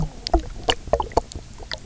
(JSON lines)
{"label": "biophony, knock croak", "recorder": "SoundTrap 300"}